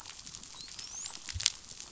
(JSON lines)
{"label": "biophony, dolphin", "recorder": "SoundTrap 500"}